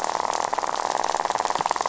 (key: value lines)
label: biophony, rattle
recorder: SoundTrap 500